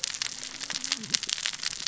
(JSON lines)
{"label": "biophony, cascading saw", "recorder": "SoundTrap 600 or HydroMoth"}